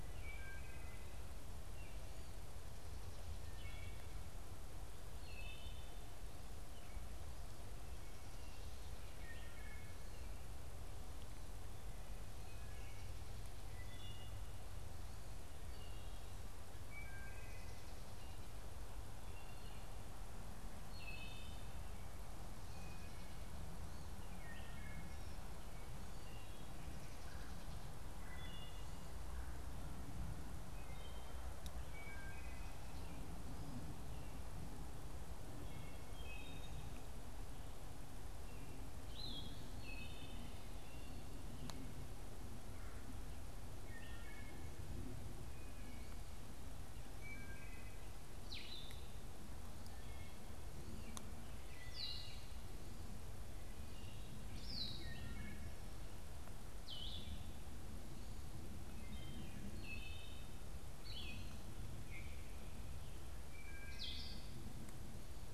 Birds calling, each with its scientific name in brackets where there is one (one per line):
Wood Thrush (Hylocichla mustelina)
Blue-headed Vireo (Vireo solitarius)